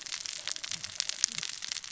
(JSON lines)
{"label": "biophony, cascading saw", "recorder": "SoundTrap 600 or HydroMoth"}